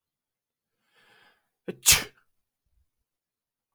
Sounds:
Sneeze